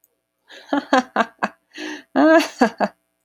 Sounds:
Laughter